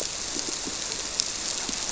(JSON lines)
{"label": "biophony, squirrelfish (Holocentrus)", "recorder": "SoundTrap 300"}